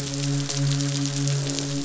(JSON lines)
{"label": "biophony, midshipman", "recorder": "SoundTrap 500"}